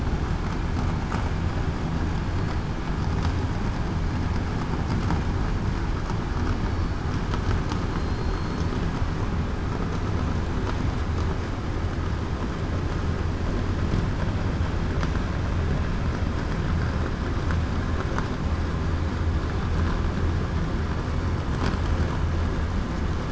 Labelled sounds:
7.9	8.6	killer whale, southern resident, 4.1 to 4.3 kHz

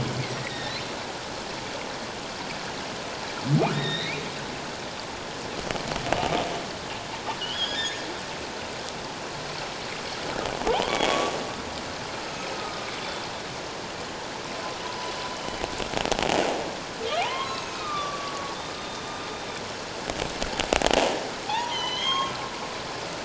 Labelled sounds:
0.4	0.8	humpback whale, 1.8 to 5.7 kHz
3.7	4.2	humpback whale, 1.8 to 4.2 kHz
7.4	8.0	humpback whale, 1.6 to 5.1 kHz
10.7	11.3	humpback whale, 0.78 to 3.5 kHz
12.5	13.3	humpback whale, 1.2 to 3.6 kHz
15.3	15.6	humpback whale, 3.0 to 3.1 kHz
17.2	18.5	humpback whale, 0.78 to 3.3 kHz
18.8	19.0	humpback whale, 3.5 to 3.8 kHz
21.5	22.4	humpback whale, 0.78 to 6.5 kHz

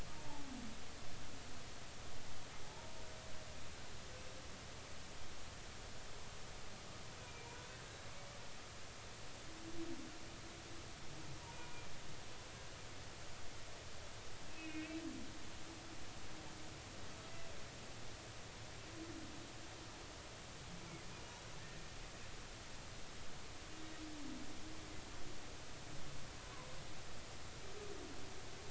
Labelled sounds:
0.1	0.4	humpback whale, 0.80 to 0.96 kHz
2.6	2.9	humpback whale, 0.80 to 0.99 kHz
7.3	7.8	humpback whale, 1.4 to 2.5 kHz
14.5	15.0	humpback whale, 2.1 to 2.7 kHz
21.6	21.8	humpback whale, 1.7 to 1.9 kHz
26.4	26.7	humpback whale, 0.93 to 1.2 kHz

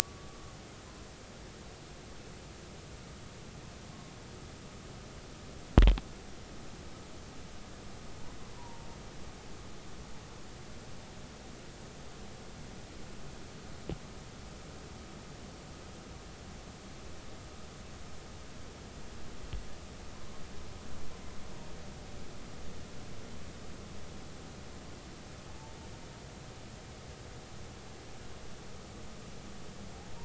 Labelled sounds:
0.0	0.3	humpback whale, 1.1 to 1.2 kHz
8.6	8.9	humpback whale, 0.80 to 1.0 kHz

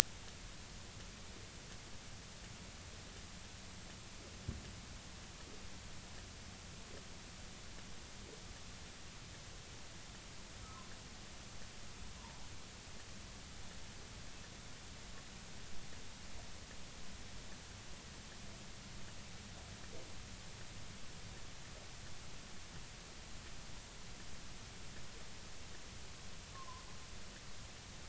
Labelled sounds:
26.5	26.8	humpback whale, 0.96 to 1.2 kHz

